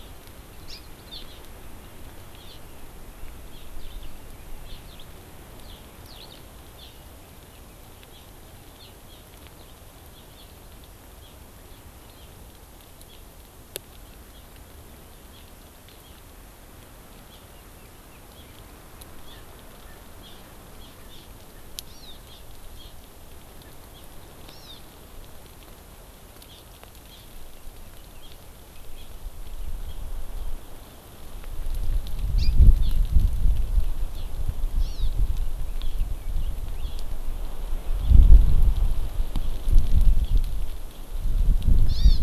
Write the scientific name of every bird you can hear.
Chlorodrepanis virens, Alauda arvensis